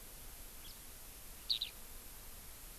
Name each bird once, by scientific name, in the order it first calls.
Chlorodrepanis virens, Alauda arvensis